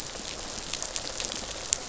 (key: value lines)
label: biophony, rattle response
recorder: SoundTrap 500